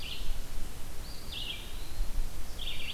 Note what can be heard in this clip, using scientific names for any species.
Setophaga coronata, Vireo olivaceus, Contopus virens, Setophaga virens